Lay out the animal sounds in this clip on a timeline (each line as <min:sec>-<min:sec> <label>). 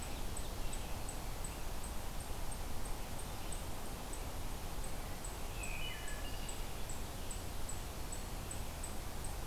0:00.0-0:09.5 unknown mammal
0:05.5-0:06.6 Wood Thrush (Hylocichla mustelina)